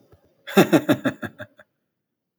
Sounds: Laughter